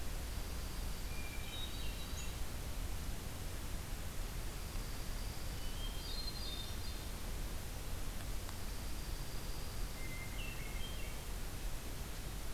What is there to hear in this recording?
Dark-eyed Junco, Hermit Thrush